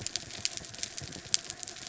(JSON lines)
{"label": "anthrophony, mechanical", "recorder": "SoundTrap 300"}